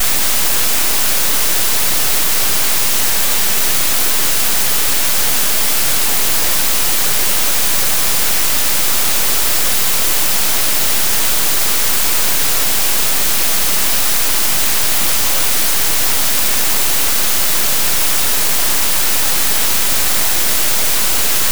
Is it wet outside?
yes